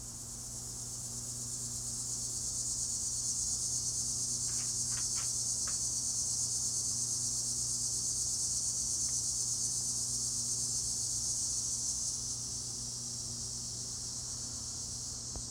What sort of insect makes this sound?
cicada